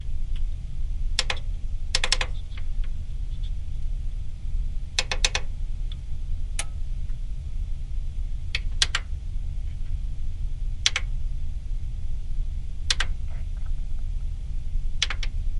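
Prolonged background noise indoors. 0.0 - 15.6
A button is being pressed. 1.1 - 2.3
A button is pressed repeatedly. 5.0 - 5.4
A button is pressed repeatedly. 8.5 - 9.1
A button is being pressed. 10.8 - 11.0
A button is being pressed. 12.9 - 13.1
A button is pressed repeatedly. 15.0 - 15.3

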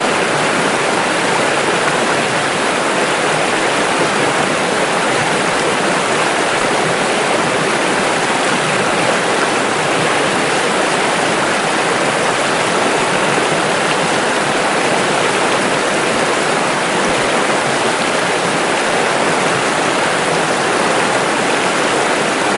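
Loud rushing water of a river. 0.0 - 22.6

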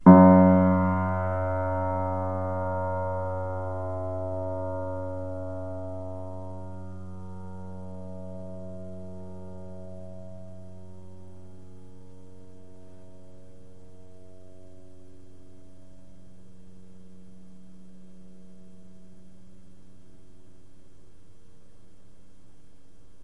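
A piano key is pressed and the sound fades out. 0.0 - 21.2

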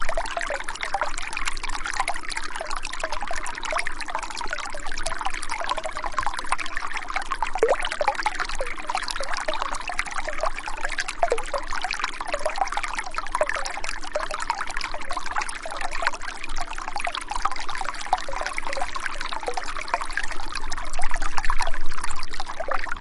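Water splashes quietly. 0.0 - 23.0

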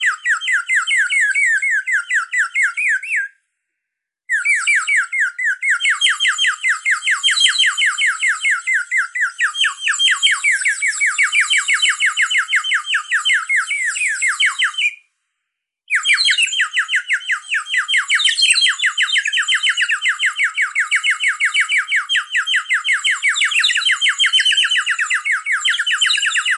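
A bird chirps loudly with fluctuating frequency. 0.0 - 3.3
A bird chirps loudly with fluctuating frequency. 4.3 - 15.0
A bird chirps loudly with fluctuating frequency. 15.9 - 26.6

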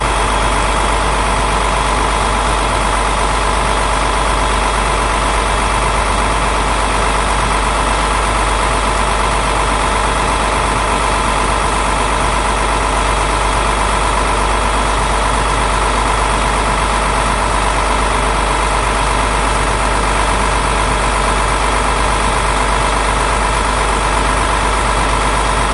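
An old engine runs smoothly with electronic distortion. 0.0 - 25.7

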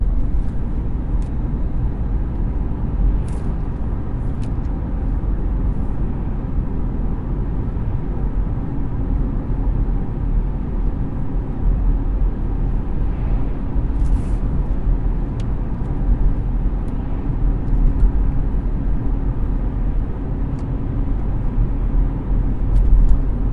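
A car is being driven. 0.0 - 23.5
An unclear tapping sound. 2.9 - 5.6
Quiet tapping noises in the background. 14.0 - 23.5

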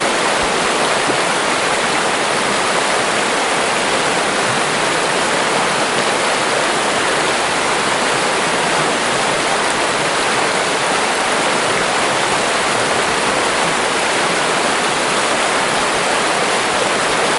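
A heavy waterfall roars loudly in an outdoor natural setting. 0.0 - 17.4

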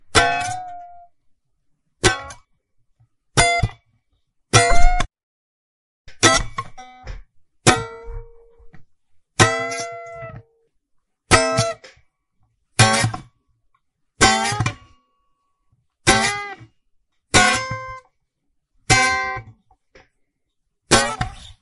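Metallic sound of a stringed instrument, such as a guitar or violin. 0.0 - 21.6

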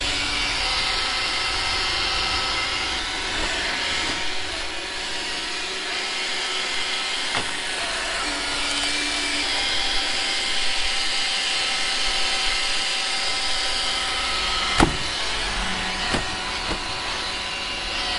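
A vacuum cleaner is activated and continuously sucking dirt and dust. 0.0 - 18.2

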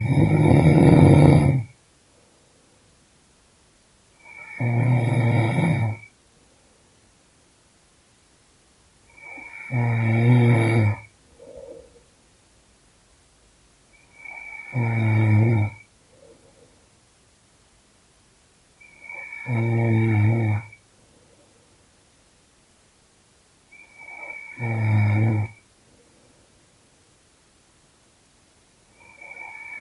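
A man snores loudly. 0.0 - 1.7
A man is snoring. 4.2 - 6.1
A man is snoring. 9.2 - 12.1
A man is snoring. 14.2 - 16.8
A man is snoring. 19.0 - 21.6
A man is snoring. 23.9 - 26.5
A man is snoring. 29.1 - 29.8

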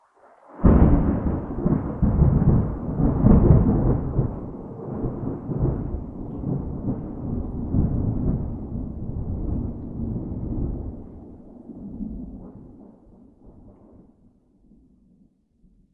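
A loud, irregular thunderclap outdoors. 0.5 - 13.7

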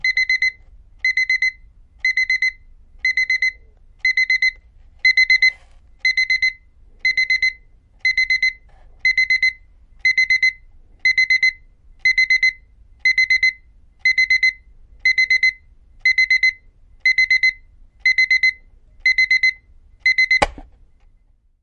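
An alarm clock beeps repeatedly with high-pitched, short beeps. 0.0 - 20.4
An alarm clock ticks once. 20.4 - 20.7

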